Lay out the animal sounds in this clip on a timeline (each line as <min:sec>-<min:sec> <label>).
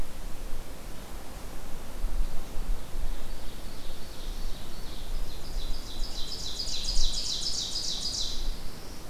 0:02.6-0:08.4 Ovenbird (Seiurus aurocapilla)
0:07.8-0:09.1 Black-throated Blue Warbler (Setophaga caerulescens)